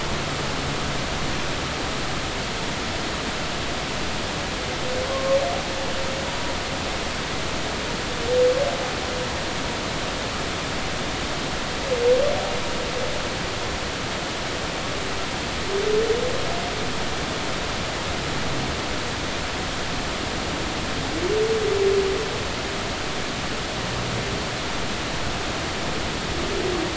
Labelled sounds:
5.1	5.4	humpback whale, 1.0 to 1.2 kHz

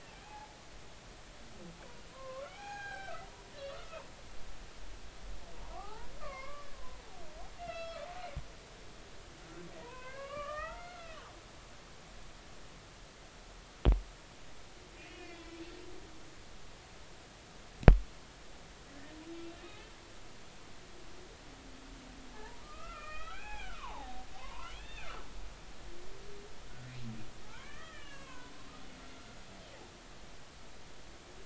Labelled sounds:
0.1	0.6	humpback whale, 0.80 to 0.93 kHz
2.1	4.0	humpback whale, 0.80 to 4.1 kHz
5.7	6.7	humpback whale, 0.80 to 2.4 kHz
7.6	8.1	humpback whale, 1.2 to 3.4 kHz
9.8	11.2	humpback whale, 0.90 to 3.1 kHz
15.0	15.5	humpback whale, 1.9 to 3.0 kHz
19.6	19.9	humpback whale, 2.4 to 2.7 kHz
22.3	25.2	humpback whale, 0.80 to 3.7 kHz
27.4	28.5	humpback whale, 0.80 to 3.3 kHz

